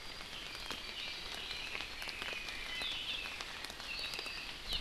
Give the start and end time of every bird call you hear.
0.8s-3.4s: Red-billed Leiothrix (Leiothrix lutea)
3.8s-4.6s: Apapane (Himatione sanguinea)

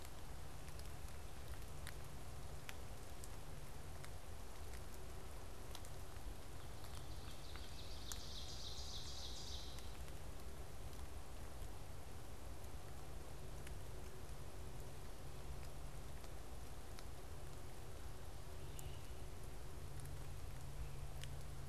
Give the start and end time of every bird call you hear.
7.2s-10.2s: Ovenbird (Seiurus aurocapilla)
18.6s-19.2s: Great Crested Flycatcher (Myiarchus crinitus)

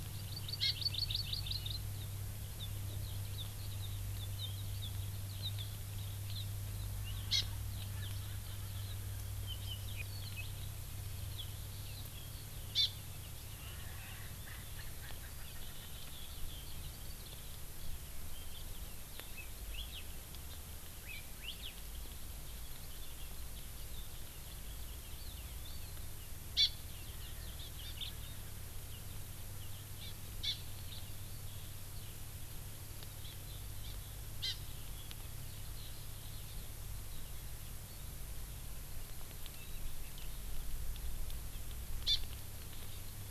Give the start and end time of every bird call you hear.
0.0s-9.0s: Eurasian Skylark (Alauda arvensis)
0.2s-1.9s: Hawaii Amakihi (Chlorodrepanis virens)
7.3s-7.5s: Hawaii Amakihi (Chlorodrepanis virens)
7.9s-9.3s: Erckel's Francolin (Pternistis erckelii)
11.3s-26.2s: Eurasian Skylark (Alauda arvensis)
12.8s-12.9s: Hawaii Amakihi (Chlorodrepanis virens)
13.7s-16.2s: Erckel's Francolin (Pternistis erckelii)
19.7s-20.1s: Hawaii Elepaio (Chasiempis sandwichensis)
21.1s-21.8s: Hawaii Elepaio (Chasiempis sandwichensis)
26.6s-26.7s: Hawaii Amakihi (Chlorodrepanis virens)
27.6s-28.0s: Hawaii Amakihi (Chlorodrepanis virens)
30.0s-30.2s: Hawaii Amakihi (Chlorodrepanis virens)
30.5s-30.6s: Hawaii Amakihi (Chlorodrepanis virens)
33.3s-33.4s: Hawaii Amakihi (Chlorodrepanis virens)
34.4s-34.6s: Hawaii Amakihi (Chlorodrepanis virens)
42.1s-42.2s: Hawaii Amakihi (Chlorodrepanis virens)

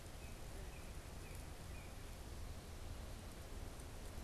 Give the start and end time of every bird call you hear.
0.0s-2.2s: Northern Cardinal (Cardinalis cardinalis)

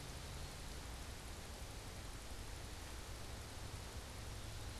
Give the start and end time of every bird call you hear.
0.0s-4.8s: Eastern Wood-Pewee (Contopus virens)

